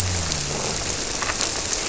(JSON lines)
{"label": "biophony", "recorder": "SoundTrap 300"}